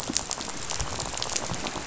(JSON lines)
{"label": "biophony, rattle", "recorder": "SoundTrap 500"}